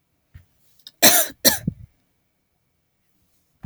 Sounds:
Cough